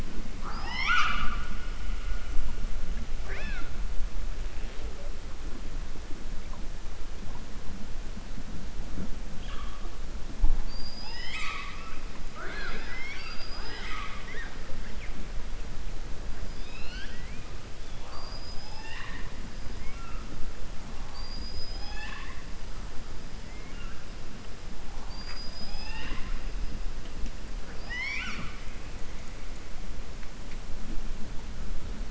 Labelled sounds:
0.3	1.4	killer whale, southern resident, 0.54 to 7.0 kHz
12.2	14.5	killer whale, southern resident, 0.41 to 6.2 kHz
18.0	19.3	killer whale, southern resident, 0.82 to 5.3 kHz
27.6	28.6	killer whale, southern resident, 0.65 to 7.1 kHz

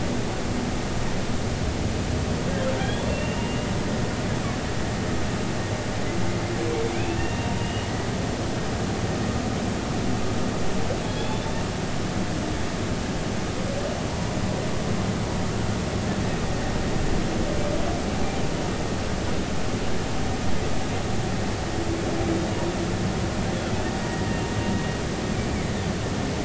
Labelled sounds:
2.8	3.7	humpback whale, 1.5 to 3.5 kHz
7.0	7.9	humpback whale, 2.4 to 2.9 kHz
11.0	11.6	humpback whale, 3.3 to 3.6 kHz
14.1	14.4	humpback whale, 0.90 to 1.1 kHz
24.0	24.4	humpback whale, 1.7 to 2.0 kHz
25.3	25.8	humpback whale, 2.0 to 2.4 kHz

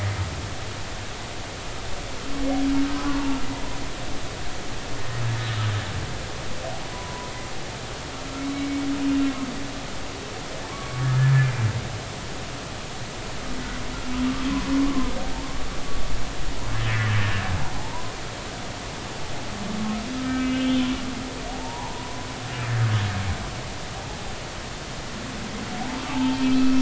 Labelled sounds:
2.9	3.2	humpback whale, 0.99 to 1.2 kHz
6.8	7.3	humpback whale, 0.93 to 1.0 kHz
8.5	8.9	humpback whale, 2.2 to 2.3 kHz
10.7	11.5	humpback whale, 0.99 to 1.8 kHz
14.8	15.1	humpback whale, 0.96 to 1.2 kHz
16.9	18.1	humpback whale, 0.80 to 1.9 kHz
20.2	20.9	humpback whale, 1.5 to 3.2 kHz
21.5	22.2	humpback whale, 0.80 to 1.1 kHz
26.1	26.7	humpback whale, 0.83 to 3.2 kHz

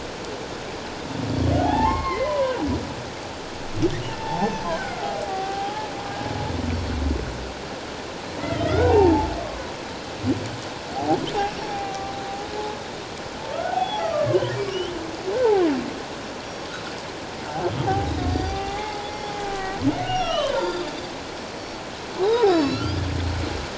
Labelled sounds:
1.6	2.5	humpback whale, 0.78 to 2.2 kHz
4.1	5.9	humpback whale, 0.78 to 6.2 kHz
8.4	9.7	humpback whale, 0.78 to 4.0 kHz
10.9	12.1	humpback whale, 0.78 to 2.8 kHz
13.5	14.5	humpback whale, 0.78 to 3.5 kHz
16.4	16.7	humpback whale, 5.5 to 5.7 kHz
17.9	20.9	humpback whale, 0.78 to 7.2 kHz
22.2	22.9	humpback whale, 0.78 to 7.0 kHz

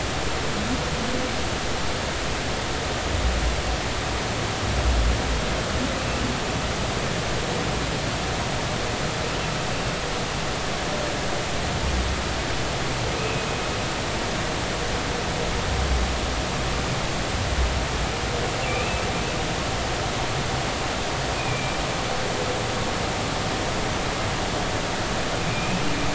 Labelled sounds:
13.2	13.5	humpback whale, 2.5 to 2.7 kHz
18.7	19.0	humpback whale, 2.3 to 2.7 kHz
21.4	21.8	humpback whale, 2.3 to 2.6 kHz
25.5	25.8	humpback whale, 2.3 to 2.7 kHz

